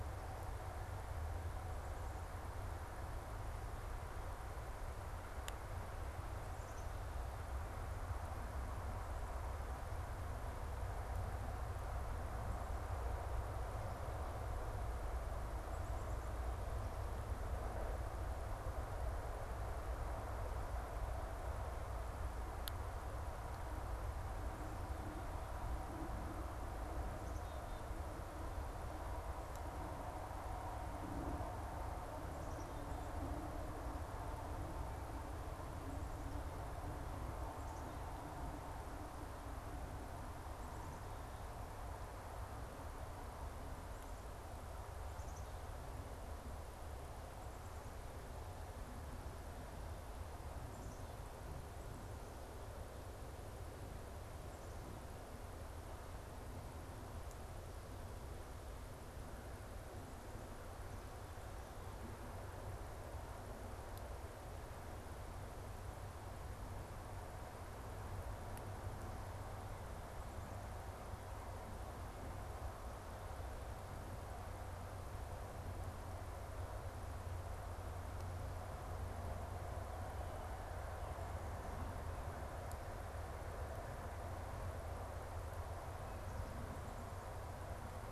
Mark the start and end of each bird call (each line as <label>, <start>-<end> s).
Black-capped Chickadee (Poecile atricapillus), 6.4-7.4 s
Black-capped Chickadee (Poecile atricapillus), 15.6-16.8 s
Black-capped Chickadee (Poecile atricapillus), 27.1-28.1 s
Black-capped Chickadee (Poecile atricapillus), 32.2-33.4 s
Black-capped Chickadee (Poecile atricapillus), 45.0-46.1 s
Black-capped Chickadee (Poecile atricapillus), 50.5-51.5 s